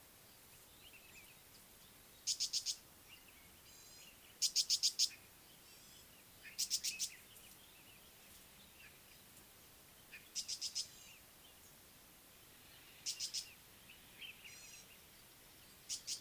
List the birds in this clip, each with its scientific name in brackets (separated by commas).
Tawny-flanked Prinia (Prinia subflava), Gray-backed Camaroptera (Camaroptera brevicaudata)